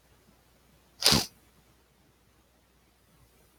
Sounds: Sniff